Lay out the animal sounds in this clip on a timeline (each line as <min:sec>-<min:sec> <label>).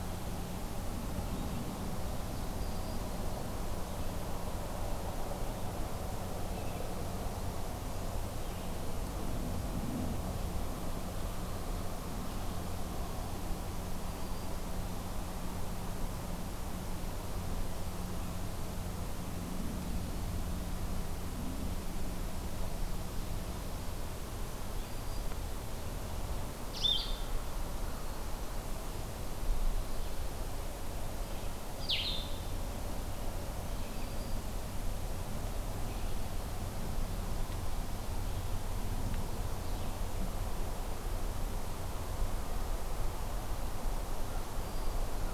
0:02.5-0:03.1 Black-throated Green Warbler (Setophaga virens)
0:13.9-0:14.6 Black-throated Green Warbler (Setophaga virens)
0:24.7-0:25.4 Black-throated Green Warbler (Setophaga virens)
0:26.7-0:27.4 Blue-headed Vireo (Vireo solitarius)
0:31.7-0:32.5 Blue-headed Vireo (Vireo solitarius)
0:33.9-0:34.5 Black-throated Green Warbler (Setophaga virens)
0:44.4-0:45.1 Black-throated Green Warbler (Setophaga virens)